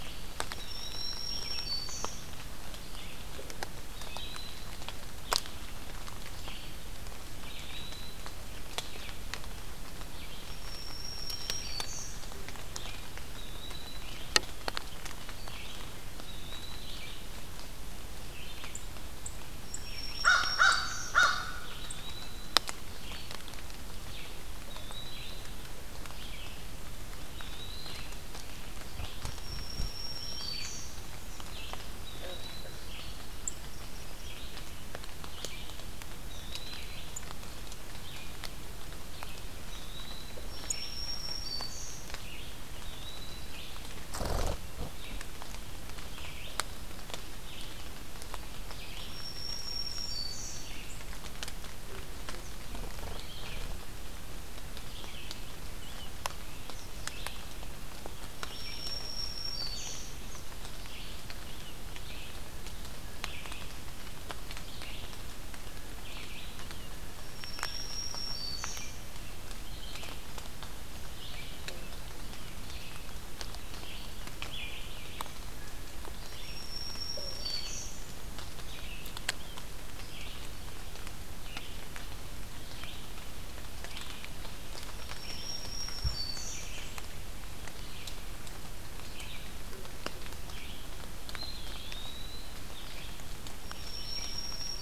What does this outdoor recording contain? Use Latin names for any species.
Vireo olivaceus, Contopus virens, Setophaga virens, Corvus brachyrhynchos, Pheucticus ludovicianus, Setophaga fusca